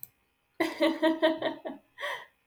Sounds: Laughter